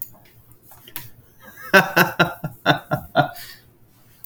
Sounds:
Laughter